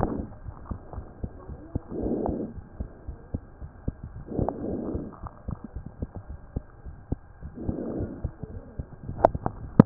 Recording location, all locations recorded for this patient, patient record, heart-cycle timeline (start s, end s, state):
pulmonary valve (PV)
aortic valve (AV)+pulmonary valve (PV)+tricuspid valve (TV)+mitral valve (MV)
#Age: Child
#Sex: Male
#Height: 95.0 cm
#Weight: 15.9 kg
#Pregnancy status: False
#Murmur: Absent
#Murmur locations: nan
#Most audible location: nan
#Systolic murmur timing: nan
#Systolic murmur shape: nan
#Systolic murmur grading: nan
#Systolic murmur pitch: nan
#Systolic murmur quality: nan
#Diastolic murmur timing: nan
#Diastolic murmur shape: nan
#Diastolic murmur grading: nan
#Diastolic murmur pitch: nan
#Diastolic murmur quality: nan
#Outcome: Normal
#Campaign: 2015 screening campaign
0.00	2.53	unannotated
2.53	2.65	S1
2.65	2.77	systole
2.77	2.88	S2
2.88	3.06	diastole
3.06	3.17	S1
3.17	3.31	diastole
3.31	3.41	systole
3.41	3.58	diastole
3.58	3.71	S1
3.71	3.86	systole
3.86	3.93	S2
3.93	4.14	diastole
4.14	4.25	S1
4.25	5.19	unannotated
5.19	5.30	S1
5.30	5.45	systole
5.45	5.55	S2
5.55	5.73	diastole
5.73	5.84	S1
5.84	5.99	systole
5.99	6.08	S2
6.08	6.27	diastole
6.27	6.38	S1
6.38	9.86	unannotated